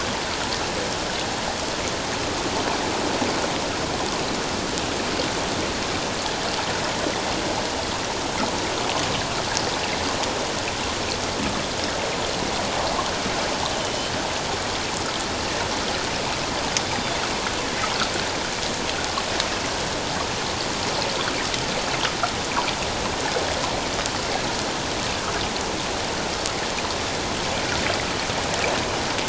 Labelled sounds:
13.8	14.1	Pacific white-sided dolphin, 2.9 to 3.2 kHz

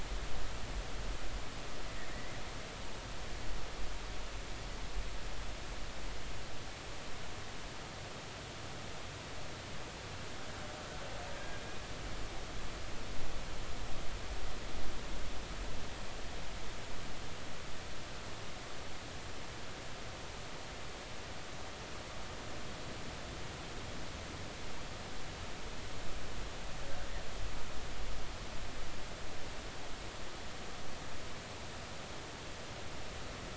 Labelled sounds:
2.1	2.4	killer whale, Bigg's (transient), 1.8 to 2.1 kHz
11.3	11.6	killer whale, Bigg's (transient), 1.6 to 1.7 kHz

